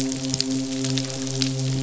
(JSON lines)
{"label": "biophony, midshipman", "recorder": "SoundTrap 500"}